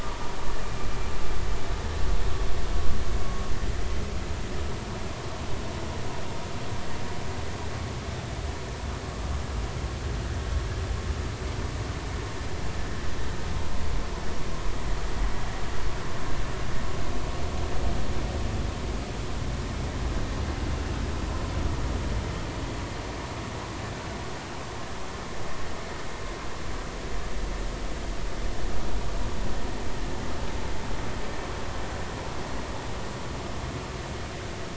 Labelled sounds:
3.3	3.5	vessel noise, 1.06 to 1.12 kHz

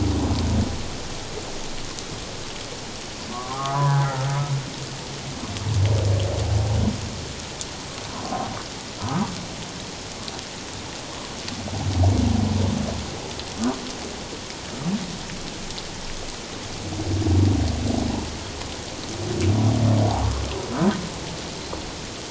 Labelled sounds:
3.3	4.1	humpback whale, 0.78 to 1.8 kHz
8.2	9.2	humpback whale, 0.78 to 1.4 kHz

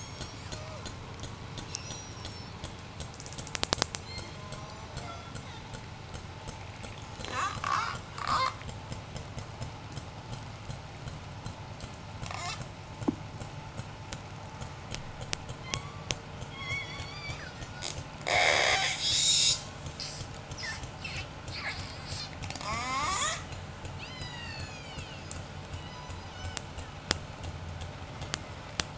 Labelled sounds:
1.5	2.9	killer whale, J pod, 2.3 to 8.0 kHz
4.0	6.0	killer whale, J pod, 0.26 to 8.0 kHz
7.1	8.8	killer whale, J pod, 0.25 to 8.0 kHz
12.1	12.8	killer whale, J pod, 0.38 to 8.0 kHz
15.6	17.8	killer whale, J pod, 0.65 to 8.0 kHz
18.2	25.5	killer whale, J pod, 0.20 to 8.0 kHz
25.5	26.7	killer whale, J pod, call S03, 0.95 to 8.0 kHz

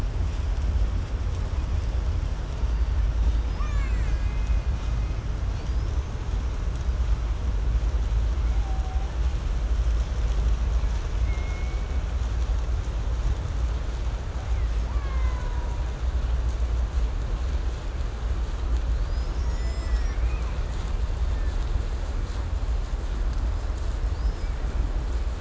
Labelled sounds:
3.0	5.4	killer whale, Bigg's (transient), 0.65 to 8.0 kHz
5.5	7.2	killer whale, 2.6 to 8.0 kHz
8.1	9.3	killer whale, 0.44 to 2.7 kHz
11.0	12.4	killer whale, Bigg's (transient), 0.63 to 2.5 kHz
14.3	16.1	killer whale, Bigg's (transient), call T08, 0.40 to 8.0 kHz
18.6	21.8	killer whale, 0.51 to 8.0 kHz
23.9	24.8	killer whale, 1.7 to 5.9 kHz

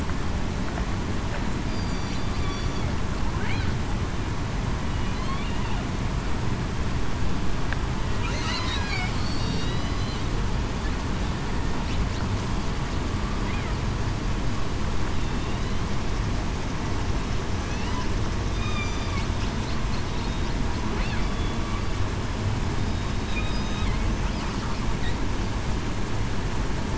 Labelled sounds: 1.6	2.3	killer whale, southern resident, 4.6 to 4.8 kHz
8.7	9.1	killer whale, southern resident, 2.2 to 2.5 kHz
9.4	10.0	killer whale, southern resident, 3.7 to 4.0 kHz
18.5	18.9	killer whale, southern resident, 4.7 to 5.0 kHz
20.1	20.5	killer whale, southern resident, 3.7 to 3.8 kHz
22.7	23.3	killer whale, southern resident, 3.7 to 3.8 kHz

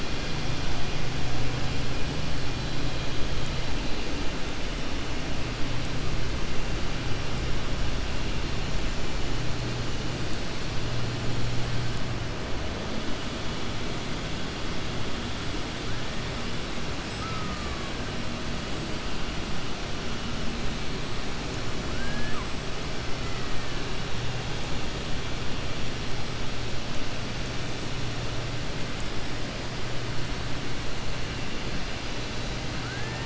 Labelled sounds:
17.1	17.9	killer whale, 1.0 to 2.1 kHz
21.9	22.5	killer whale, 0.99 to 1.8 kHz

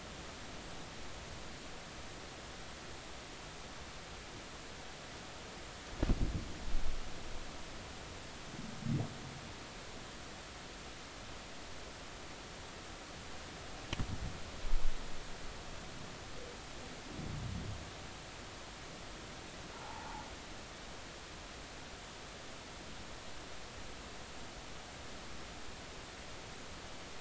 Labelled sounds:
19.7	20.2	humpback whale, 0.80 to 0.99 kHz

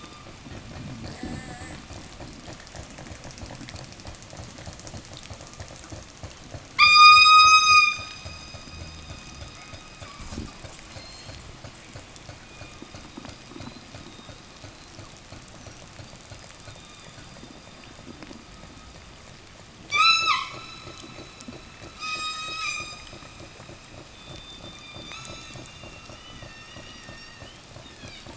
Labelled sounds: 1.0	2.3	killer whale, southern resident, 0 to 8.0 kHz
6.7	8.6	killer whale, southern resident, call S16, 0.87 to 8.0 kHz
9.7	18.2	killer whale, southern resident, 0.08 to 8.0 kHz
19.8	20.7	killer whale, southern resident, 0.87 to 8.0 kHz
21.9	23.4	killer whale, southern resident, 0 to 8.0 kHz
23.9	28.3	killer whale, southern resident, 0 to 8.0 kHz

